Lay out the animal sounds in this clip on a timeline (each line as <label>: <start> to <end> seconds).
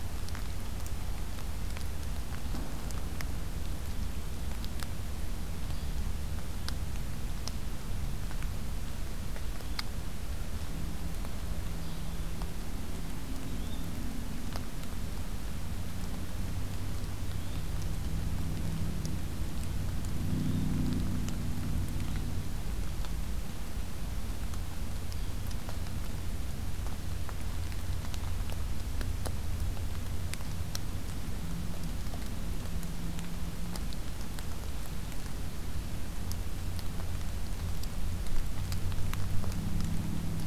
Yellow-bellied Flycatcher (Empidonax flaviventris): 13.4 to 13.8 seconds
Yellow-bellied Flycatcher (Empidonax flaviventris): 17.3 to 17.6 seconds
Yellow-bellied Flycatcher (Empidonax flaviventris): 20.1 to 20.7 seconds